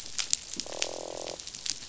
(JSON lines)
{"label": "biophony, croak", "recorder": "SoundTrap 500"}